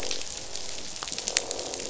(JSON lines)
{"label": "biophony, croak", "recorder": "SoundTrap 500"}